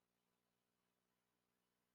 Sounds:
Sigh